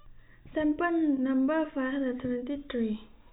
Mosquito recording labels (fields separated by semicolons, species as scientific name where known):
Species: no mosquito; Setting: cup